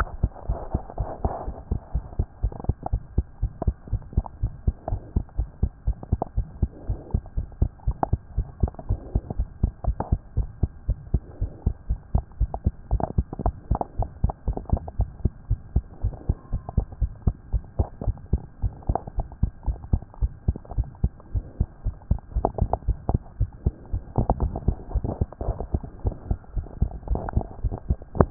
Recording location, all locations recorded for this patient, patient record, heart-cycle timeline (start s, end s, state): pulmonary valve (PV)
pulmonary valve (PV)+tricuspid valve (TV)+mitral valve (MV)
#Age: Child
#Sex: Female
#Height: 95.0 cm
#Weight: 15.4 kg
#Pregnancy status: False
#Murmur: Present
#Murmur locations: mitral valve (MV)+pulmonary valve (PV)
#Most audible location: mitral valve (MV)
#Systolic murmur timing: Early-systolic
#Systolic murmur shape: Plateau
#Systolic murmur grading: I/VI
#Systolic murmur pitch: Low
#Systolic murmur quality: Blowing
#Diastolic murmur timing: nan
#Diastolic murmur shape: nan
#Diastolic murmur grading: nan
#Diastolic murmur pitch: nan
#Diastolic murmur quality: nan
#Outcome: Normal
#Campaign: 2014 screening campaign
0.00	0.08	S1
0.08	0.22	systole
0.22	0.30	S2
0.30	0.48	diastole
0.48	0.58	S1
0.58	0.72	systole
0.72	0.82	S2
0.82	0.98	diastole
0.98	1.08	S1
1.08	1.22	systole
1.22	1.32	S2
1.32	1.46	diastole
1.46	1.58	S1
1.58	1.70	systole
1.70	1.78	S2
1.78	1.94	diastole
1.94	2.04	S1
2.04	2.18	systole
2.18	2.26	S2
2.26	2.42	diastole
2.42	2.52	S1
2.52	2.66	systole
2.66	2.76	S2
2.76	2.92	diastole
2.92	3.02	S1
3.02	3.16	systole
3.16	3.26	S2
3.26	3.42	diastole
3.42	3.52	S1
3.52	3.66	systole
3.66	3.74	S2
3.74	3.92	diastole
3.92	4.02	S1
4.02	4.16	systole
4.16	4.24	S2
4.24	4.42	diastole
4.42	4.52	S1
4.52	4.66	systole
4.66	4.74	S2
4.74	4.90	diastole
4.90	5.00	S1
5.00	5.14	systole
5.14	5.24	S2
5.24	5.38	diastole
5.38	5.48	S1
5.48	5.62	systole
5.62	5.72	S2
5.72	5.86	diastole
5.86	5.96	S1
5.96	6.10	systole
6.10	6.20	S2
6.20	6.36	diastole
6.36	6.46	S1
6.46	6.60	systole
6.60	6.70	S2
6.70	6.88	diastole
6.88	6.98	S1
6.98	7.12	systole
7.12	7.22	S2
7.22	7.36	diastole
7.36	7.48	S1
7.48	7.60	systole
7.60	7.70	S2
7.70	7.86	diastole
7.86	7.96	S1
7.96	8.10	systole
8.10	8.20	S2
8.20	8.36	diastole
8.36	8.48	S1
8.48	8.62	systole
8.62	8.70	S2
8.70	8.88	diastole
8.88	9.00	S1
9.00	9.14	systole
9.14	9.22	S2
9.22	9.38	diastole
9.38	9.48	S1
9.48	9.62	systole
9.62	9.72	S2
9.72	9.86	diastole
9.86	9.96	S1
9.96	10.10	systole
10.10	10.20	S2
10.20	10.36	diastole
10.36	10.48	S1
10.48	10.62	systole
10.62	10.70	S2
10.70	10.88	diastole
10.88	10.98	S1
10.98	11.12	systole
11.12	11.22	S2
11.22	11.40	diastole
11.40	11.52	S1
11.52	11.66	systole
11.66	11.74	S2
11.74	11.90	diastole
11.90	12.00	S1
12.00	12.14	systole
12.14	12.24	S2
12.24	12.40	diastole
12.40	12.50	S1
12.50	12.64	systole
12.64	12.72	S2
12.72	12.92	diastole
12.92	13.02	S1
13.02	13.16	systole
13.16	13.26	S2
13.26	13.44	diastole
13.44	13.54	S1
13.54	13.70	systole
13.70	13.80	S2
13.80	13.98	diastole
13.98	14.08	S1
14.08	14.22	systole
14.22	14.32	S2
14.32	14.48	diastole
14.48	14.58	S1
14.58	14.70	systole
14.70	14.80	S2
14.80	14.98	diastole
14.98	15.10	S1
15.10	15.24	systole
15.24	15.32	S2
15.32	15.50	diastole
15.50	15.60	S1
15.60	15.74	systole
15.74	15.84	S2
15.84	16.02	diastole
16.02	16.14	S1
16.14	16.28	systole
16.28	16.36	S2
16.36	16.52	diastole
16.52	16.62	S1
16.62	16.76	systole
16.76	16.86	S2
16.86	17.00	diastole
17.00	17.12	S1
17.12	17.26	systole
17.26	17.34	S2
17.34	17.52	diastole
17.52	17.64	S1
17.64	17.78	systole
17.78	17.88	S2
17.88	18.06	diastole
18.06	18.16	S1
18.16	18.32	systole
18.32	18.42	S2
18.42	18.62	diastole
18.62	18.74	S1
18.74	18.88	systole
18.88	18.98	S2
18.98	19.16	diastole
19.16	19.28	S1
19.28	19.42	systole
19.42	19.50	S2
19.50	19.66	diastole
19.66	19.78	S1
19.78	19.92	systole
19.92	20.02	S2
20.02	20.20	diastole
20.20	20.32	S1
20.32	20.46	systole
20.46	20.56	S2
20.56	20.76	diastole
20.76	20.88	S1
20.88	21.02	systole
21.02	21.12	S2
21.12	21.34	diastole
21.34	21.44	S1
21.44	21.58	systole
21.58	21.68	S2
21.68	21.84	diastole
21.84	21.96	S1
21.96	22.10	systole
22.10	22.18	S2
22.18	22.36	diastole